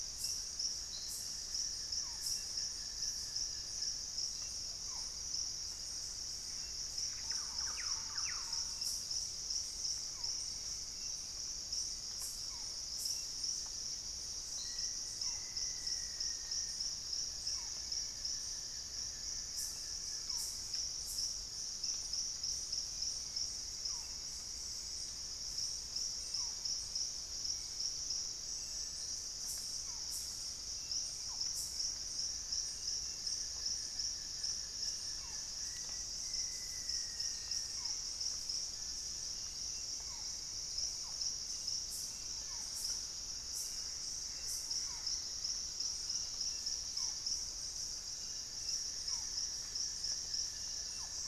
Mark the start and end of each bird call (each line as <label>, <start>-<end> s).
Barred Forest-Falcon (Micrastur ruficollis), 0.0-51.3 s
Buff-throated Woodcreeper (Xiphorhynchus guttatus), 0.1-4.3 s
Gray Antbird (Cercomacra cinerascens), 6.2-8.8 s
Thrush-like Wren (Campylorhynchus turdinus), 6.5-9.0 s
Black-faced Antthrush (Formicarius analis), 14.5-17.0 s
Buff-throated Woodcreeper (Xiphorhynchus guttatus), 16.8-20.7 s
unidentified bird, 19.4-20.8 s
Hauxwell's Thrush (Turdus hauxwelli), 21.4-27.7 s
Buff-throated Woodcreeper (Xiphorhynchus guttatus), 32.2-36.3 s
Black-faced Antthrush (Formicarius analis), 35.5-38.0 s
Hauxwell's Thrush (Turdus hauxwelli), 38.1-42.8 s
Gray Antbird (Cercomacra cinerascens), 43.4-45.6 s
Buff-throated Woodcreeper (Xiphorhynchus guttatus), 47.8-51.3 s
Russet-backed Oropendola (Psarocolius angustifrons), 50.7-51.3 s